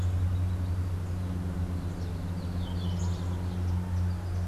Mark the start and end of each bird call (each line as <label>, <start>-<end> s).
Yellow-throated Euphonia (Euphonia hirundinacea), 0.0-4.5 s